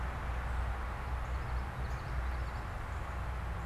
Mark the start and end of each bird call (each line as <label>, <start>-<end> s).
Common Yellowthroat (Geothlypis trichas), 1.1-2.6 s